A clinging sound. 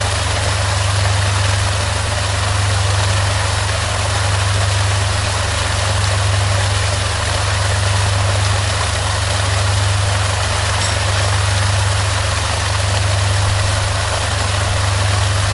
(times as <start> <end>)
10.8 11.2